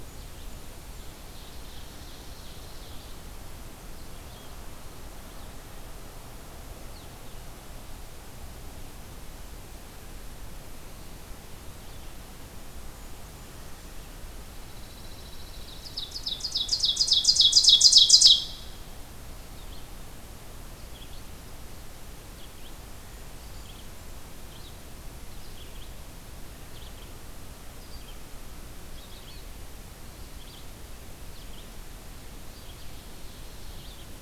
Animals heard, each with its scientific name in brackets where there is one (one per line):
Ovenbird (Seiurus aurocapilla)
Red-eyed Vireo (Vireo olivaceus)
Pine Warbler (Setophaga pinus)
Blackburnian Warbler (Setophaga fusca)